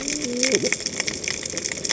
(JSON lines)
{"label": "biophony, cascading saw", "recorder": "HydroMoth"}